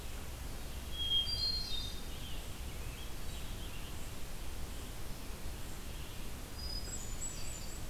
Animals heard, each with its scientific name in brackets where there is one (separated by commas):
Red-eyed Vireo (Vireo olivaceus), Hermit Thrush (Catharus guttatus), Scarlet Tanager (Piranga olivacea)